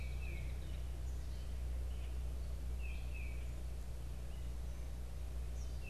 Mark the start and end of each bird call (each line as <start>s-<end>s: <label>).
0.0s-5.9s: Tufted Titmouse (Baeolophus bicolor)
5.2s-5.9s: Eastern Kingbird (Tyrannus tyrannus)